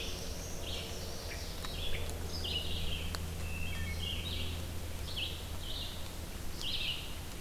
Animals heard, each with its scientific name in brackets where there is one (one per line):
Black-throated Blue Warbler (Setophaga caerulescens)
Wood Thrush (Hylocichla mustelina)
Red-eyed Vireo (Vireo olivaceus)
Chestnut-sided Warbler (Setophaga pensylvanica)